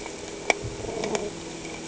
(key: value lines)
label: anthrophony, boat engine
recorder: HydroMoth